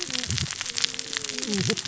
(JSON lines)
{"label": "biophony, cascading saw", "recorder": "SoundTrap 600 or HydroMoth"}